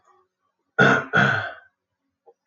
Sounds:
Throat clearing